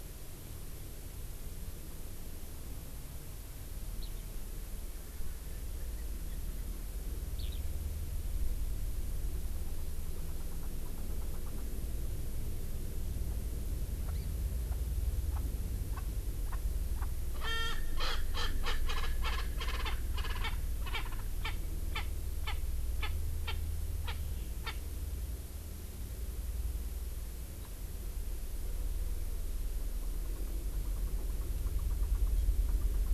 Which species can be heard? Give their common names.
Eurasian Skylark, Hawaii Amakihi, Erckel's Francolin